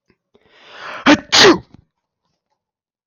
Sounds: Sneeze